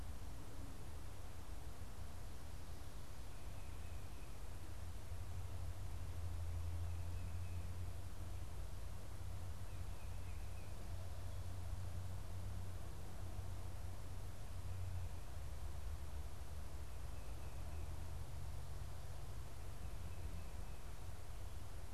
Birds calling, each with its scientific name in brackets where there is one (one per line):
Tufted Titmouse (Baeolophus bicolor)